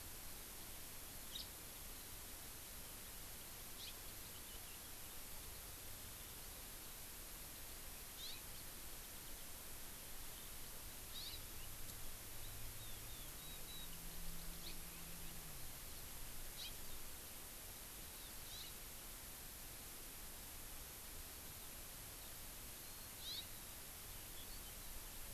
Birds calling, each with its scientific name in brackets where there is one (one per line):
Warbling White-eye (Zosterops japonicus)
Hawaii Amakihi (Chlorodrepanis virens)
House Finch (Haemorhous mexicanus)